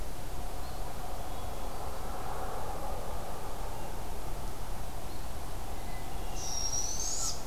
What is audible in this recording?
Hermit Thrush, Barred Owl